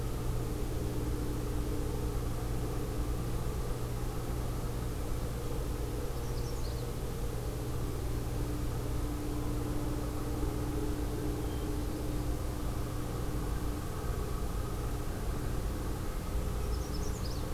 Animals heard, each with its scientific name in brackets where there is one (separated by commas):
Magnolia Warbler (Setophaga magnolia), Hermit Thrush (Catharus guttatus)